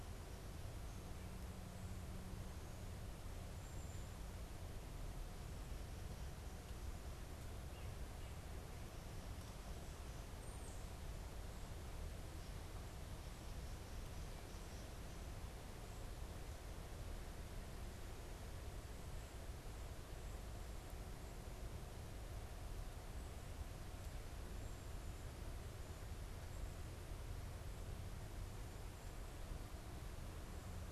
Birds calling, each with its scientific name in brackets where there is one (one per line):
Tufted Titmouse (Baeolophus bicolor)
Black-capped Chickadee (Poecile atricapillus)